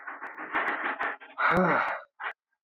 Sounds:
Sigh